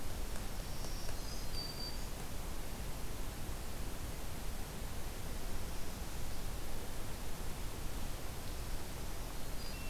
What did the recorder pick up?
Black-throated Green Warbler